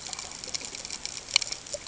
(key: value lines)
label: ambient
recorder: HydroMoth